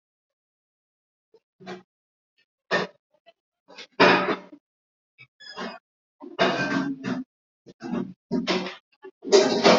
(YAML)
expert_labels:
- quality: poor
  cough_type: unknown
  dyspnea: false
  wheezing: false
  stridor: false
  choking: false
  congestion: false
  nothing: true
  diagnosis: healthy cough
  severity: unknown
age: 43
gender: male
respiratory_condition: false
fever_muscle_pain: false
status: COVID-19